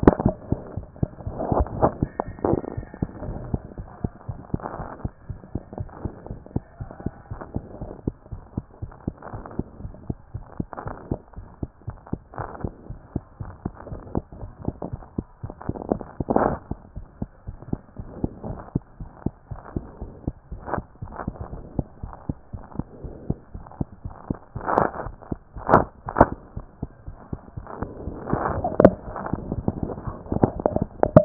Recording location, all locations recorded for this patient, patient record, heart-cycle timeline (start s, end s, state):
mitral valve (MV)
aortic valve (AV)+pulmonary valve (PV)+tricuspid valve (TV)+mitral valve (MV)
#Age: Child
#Sex: Male
#Height: 93.0 cm
#Weight: 15.4 kg
#Pregnancy status: False
#Murmur: Absent
#Murmur locations: nan
#Most audible location: nan
#Systolic murmur timing: nan
#Systolic murmur shape: nan
#Systolic murmur grading: nan
#Systolic murmur pitch: nan
#Systolic murmur quality: nan
#Diastolic murmur timing: nan
#Diastolic murmur shape: nan
#Diastolic murmur grading: nan
#Diastolic murmur pitch: nan
#Diastolic murmur quality: nan
#Outcome: Abnormal
#Campaign: 2014 screening campaign
0.00	0.14	unannotated
0.14	0.26	diastole
0.26	0.38	S1
0.38	0.46	systole
0.46	0.60	S2
0.60	0.76	diastole
0.76	0.88	S1
0.88	0.98	systole
0.98	1.10	S2
1.10	1.24	diastole
1.24	1.38	S1
1.38	1.50	systole
1.50	1.66	S2
1.66	1.78	diastole
1.78	1.94	S1
1.94	2.00	systole
2.00	2.10	S2
2.10	2.26	diastole
2.26	2.38	S1
2.38	2.46	systole
2.46	2.62	S2
2.62	2.76	diastole
2.76	2.88	S1
2.88	2.98	systole
2.98	3.10	S2
3.10	3.24	diastole
3.24	3.40	S1
3.40	3.48	systole
3.48	3.62	S2
3.62	3.78	diastole
3.78	3.88	S1
3.88	4.00	systole
4.00	4.12	S2
4.12	4.28	diastole
4.28	4.38	S1
4.38	4.50	systole
4.50	4.62	S2
4.62	4.78	diastole
4.78	4.90	S1
4.90	5.00	systole
5.00	5.14	S2
5.14	5.30	diastole
5.30	5.40	S1
5.40	5.54	systole
5.54	5.64	S2
5.64	5.78	diastole
5.78	5.90	S1
5.90	6.00	systole
6.00	6.14	S2
6.14	6.28	diastole
6.28	6.40	S1
6.40	6.52	systole
6.52	6.64	S2
6.64	6.80	diastole
6.80	6.92	S1
6.92	7.04	systole
7.04	7.16	S2
7.16	7.32	diastole
7.32	7.42	S1
7.42	7.54	systole
7.54	7.66	S2
7.66	7.80	diastole
7.80	7.92	S1
7.92	8.06	systole
8.06	8.14	S2
8.14	8.32	diastole
8.32	8.42	S1
8.42	8.56	systole
8.56	8.64	S2
8.64	8.82	diastole
8.82	8.92	S1
8.92	9.08	systole
9.08	9.14	S2
9.14	9.32	diastole
9.32	9.44	S1
9.44	9.56	systole
9.56	9.66	S2
9.66	9.80	diastole
9.80	9.94	S1
9.94	10.06	systole
10.06	10.20	S2
10.20	10.36	diastole
10.36	10.46	S1
10.46	10.56	systole
10.56	10.66	S2
10.66	10.84	diastole
10.84	10.98	S1
10.98	11.12	systole
11.12	11.22	S2
11.22	11.38	diastole
11.38	11.48	S1
11.48	11.62	systole
11.62	11.72	S2
11.72	11.88	diastole
11.88	11.98	S1
11.98	12.12	systole
12.12	12.22	S2
12.22	12.38	diastole
12.38	12.50	S1
12.50	12.62	systole
12.62	12.74	S2
12.74	12.90	diastole
12.90	13.00	S1
13.00	13.16	systole
13.16	13.26	S2
13.26	13.42	diastole
13.42	13.56	S1
13.56	13.66	systole
13.66	13.76	S2
13.76	13.90	diastole
13.90	14.04	S1
14.04	14.14	systole
14.14	14.24	S2
14.24	14.40	diastole
14.40	14.52	S1
14.52	14.64	systole
14.64	14.78	S2
14.78	14.94	diastole
14.94	15.04	S1
15.04	15.14	systole
15.14	15.26	S2
15.26	15.44	diastole
15.44	15.54	S1
15.54	15.66	systole
15.66	15.76	S2
15.76	15.88	diastole
15.88	16.02	S1
16.02	16.16	systole
16.16	16.28	S2
16.28	16.40	diastole
16.40	16.58	S1
16.58	16.68	systole
16.68	16.78	S2
16.78	16.94	diastole
16.94	17.04	S1
17.04	17.18	systole
17.18	17.30	S2
17.30	17.48	diastole
17.48	17.58	S1
17.58	17.70	systole
17.70	17.80	S2
17.80	17.96	diastole
17.96	18.06	S1
18.06	18.18	systole
18.18	18.32	S2
18.32	18.46	diastole
18.46	18.60	S1
18.60	18.76	systole
18.76	18.86	S2
18.86	19.02	diastole
19.02	19.08	S1
19.08	19.22	systole
19.22	19.34	S2
19.34	19.52	diastole
19.52	19.62	S1
19.62	19.74	systole
19.74	19.88	S2
19.88	20.02	diastole
20.02	20.14	S1
20.14	20.24	systole
20.24	20.34	S2
20.34	20.52	diastole
20.52	20.64	S1
20.64	20.74	systole
20.74	20.86	S2
20.86	21.00	diastole
21.00	21.10	S1
21.10	21.24	systole
21.24	21.38	S2
21.38	21.52	diastole
21.52	21.66	S1
21.66	21.76	systole
21.76	21.90	S2
21.90	22.04	diastole
22.04	22.14	S1
22.14	22.26	systole
22.26	22.36	S2
22.36	22.52	diastole
22.52	22.62	S1
22.62	22.76	systole
22.76	22.86	S2
22.86	23.02	diastole
23.02	23.16	S1
23.16	23.28	systole
23.28	23.38	S2
23.38	23.56	diastole
23.56	23.66	S1
23.66	23.78	systole
23.78	23.92	S2
23.92	24.06	diastole
24.06	24.12	S1
24.12	24.26	systole
24.26	24.38	S2
24.38	24.54	diastole
24.54	24.64	S1
24.64	24.74	systole
24.74	24.90	S2
24.90	25.04	diastole
25.04	25.16	S1
25.16	25.32	systole
25.32	25.48	S2
25.48	25.68	diastole
25.68	25.86	S1
25.86	25.98	systole
25.98	26.04	S2
26.04	26.18	diastole
26.18	26.36	S1
26.36	26.54	systole
26.54	31.25	unannotated